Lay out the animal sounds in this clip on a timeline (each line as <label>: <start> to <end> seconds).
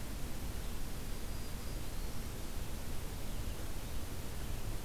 Black-throated Green Warbler (Setophaga virens): 1.1 to 2.3 seconds